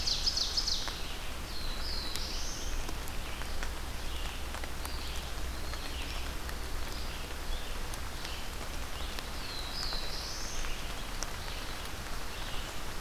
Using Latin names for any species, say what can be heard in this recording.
Seiurus aurocapilla, Vireo olivaceus, Setophaga caerulescens, Contopus virens